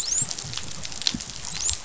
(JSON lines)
{"label": "biophony, dolphin", "recorder": "SoundTrap 500"}